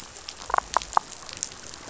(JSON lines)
{"label": "biophony", "recorder": "SoundTrap 500"}